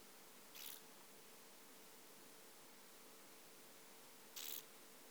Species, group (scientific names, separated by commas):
Chorthippus brunneus, Orthoptera